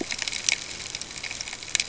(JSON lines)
{"label": "ambient", "recorder": "HydroMoth"}